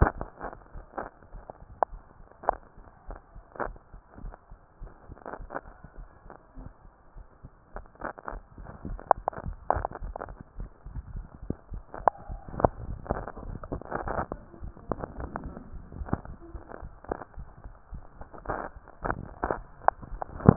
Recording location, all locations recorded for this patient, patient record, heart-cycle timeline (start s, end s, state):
mitral valve (MV)
aortic valve (AV)+pulmonary valve (PV)+tricuspid valve (TV)+mitral valve (MV)
#Age: Adolescent
#Sex: Female
#Height: 58.0 cm
#Weight: 51.6 kg
#Pregnancy status: False
#Murmur: Unknown
#Murmur locations: nan
#Most audible location: nan
#Systolic murmur timing: nan
#Systolic murmur shape: nan
#Systolic murmur grading: nan
#Systolic murmur pitch: nan
#Systolic murmur quality: nan
#Diastolic murmur timing: nan
#Diastolic murmur shape: nan
#Diastolic murmur grading: nan
#Diastolic murmur pitch: nan
#Diastolic murmur quality: nan
#Outcome: Abnormal
#Campaign: 2015 screening campaign
0.00	4.18	unannotated
4.18	4.34	S1
4.34	4.49	systole
4.49	4.60	S2
4.60	4.80	diastole
4.80	4.92	S1
4.92	5.10	systole
5.10	5.16	S2
5.16	5.38	diastole
5.38	5.50	S1
5.50	5.68	systole
5.68	5.76	S2
5.76	5.96	diastole
5.96	6.08	S1
6.08	6.26	systole
6.26	6.38	S2
6.38	6.58	diastole
6.58	6.72	S1
6.72	6.86	systole
6.86	6.94	S2
6.94	7.16	diastole
7.16	7.24	S1
7.24	7.42	systole
7.42	7.52	S2
7.52	7.74	diastole
7.74	7.86	S1
7.86	8.04	systole
8.04	8.14	S2
8.14	8.32	diastole
8.32	8.44	S1
8.44	8.58	systole
8.58	8.67	S2
8.67	8.86	diastole
8.86	9.02	S1
9.02	9.15	systole
9.15	9.26	S2
9.26	9.42	diastole
9.42	9.60	S1
9.60	9.74	systole
9.74	9.88	S2
9.88	10.02	diastole
10.02	10.16	S1
10.16	10.28	systole
10.28	10.38	S2
10.38	10.58	diastole
10.58	10.70	S1
10.70	10.84	systole
10.84	10.94	S2
10.94	11.10	diastole
11.10	11.26	S1
11.26	11.40	systole
11.40	11.56	S2
11.56	11.70	diastole
11.70	11.84	S1
11.84	11.98	systole
11.98	12.08	S2
12.08	12.26	diastole
12.26	12.42	S1
12.42	12.54	systole
12.54	12.70	S2
12.70	12.84	diastole
12.84	13.00	S1
13.00	13.12	systole
13.12	13.28	S2
13.28	13.44	diastole
13.44	13.60	S1
13.60	13.70	systole
13.70	13.82	S2
13.82	14.00	diastole
14.00	14.16	S1
14.16	14.32	systole
14.32	14.42	S2
14.42	14.62	diastole
14.62	14.74	S1
14.74	14.88	systole
14.88	15.00	S2
15.00	15.16	diastole
15.16	15.32	S1
15.32	15.44	systole
15.44	15.58	S2
15.58	15.74	diastole
15.74	15.86	S1
15.86	15.98	systole
15.98	16.12	S2
16.12	16.26	diastole
16.26	16.38	S1
16.38	20.56	unannotated